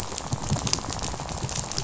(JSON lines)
{"label": "biophony, rattle", "recorder": "SoundTrap 500"}